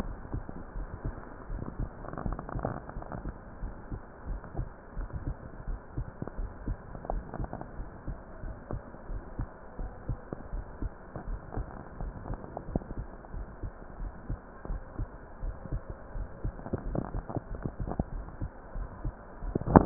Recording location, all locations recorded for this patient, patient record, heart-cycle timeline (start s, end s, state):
pulmonary valve (PV)
aortic valve (AV)+pulmonary valve (PV)+tricuspid valve (TV)+mitral valve (MV)
#Age: Adolescent
#Sex: Male
#Height: 170.0 cm
#Weight: 72.4 kg
#Pregnancy status: False
#Murmur: Absent
#Murmur locations: nan
#Most audible location: nan
#Systolic murmur timing: nan
#Systolic murmur shape: nan
#Systolic murmur grading: nan
#Systolic murmur pitch: nan
#Systolic murmur quality: nan
#Diastolic murmur timing: nan
#Diastolic murmur shape: nan
#Diastolic murmur grading: nan
#Diastolic murmur pitch: nan
#Diastolic murmur quality: nan
#Outcome: Abnormal
#Campaign: 2015 screening campaign
0.00	0.44	unannotated
0.44	0.74	diastole
0.74	0.88	S1
0.88	1.04	systole
1.04	1.14	S2
1.14	1.48	diastole
1.48	1.62	S1
1.62	1.76	systole
1.76	1.90	S2
1.90	2.22	diastole
2.22	2.38	S1
2.38	2.54	systole
2.54	2.68	S2
2.68	2.96	diastole
2.96	3.08	S1
3.08	3.22	systole
3.22	3.34	S2
3.34	3.60	diastole
3.60	3.72	S1
3.72	3.88	systole
3.88	4.00	S2
4.00	4.28	diastole
4.28	4.42	S1
4.42	4.58	systole
4.58	4.68	S2
4.68	4.96	diastole
4.96	5.10	S1
5.10	5.24	systole
5.24	5.38	S2
5.38	5.66	diastole
5.66	5.80	S1
5.80	5.94	systole
5.94	6.08	S2
6.08	6.36	diastole
6.36	6.50	S1
6.50	6.62	systole
6.62	6.78	S2
6.78	7.10	diastole
7.10	7.24	S1
7.24	7.40	systole
7.40	7.50	S2
7.50	7.76	diastole
7.76	7.88	S1
7.88	8.08	systole
8.08	8.18	S2
8.18	8.44	diastole
8.44	8.54	S1
8.54	8.70	systole
8.70	8.80	S2
8.80	9.08	diastole
9.08	9.22	S1
9.22	9.36	systole
9.36	9.48	S2
9.48	9.78	diastole
9.78	9.92	S1
9.92	10.08	systole
10.08	10.20	S2
10.20	10.52	diastole
10.52	10.66	S1
10.66	10.80	systole
10.80	10.92	S2
10.92	11.26	diastole
11.26	11.40	S1
11.40	11.54	systole
11.54	11.68	S2
11.68	12.00	diastole
12.00	12.14	S1
12.14	12.28	systole
12.28	12.38	S2
12.38	12.70	diastole
12.70	12.84	S1
12.84	12.98	systole
12.98	13.08	S2
13.08	13.34	diastole
13.34	13.46	S1
13.46	13.62	systole
13.62	13.72	S2
13.72	14.00	diastole
14.00	14.12	S1
14.12	14.28	systole
14.28	14.38	S2
14.38	14.68	diastole
14.68	14.82	S1
14.82	15.00	systole
15.00	15.10	S2
15.10	15.42	diastole
15.42	15.56	S1
15.56	15.70	systole
15.70	15.84	S2
15.84	16.14	diastole
16.14	16.28	S1
16.28	16.42	systole
16.42	16.56	S2
16.56	16.86	diastole
16.86	19.86	unannotated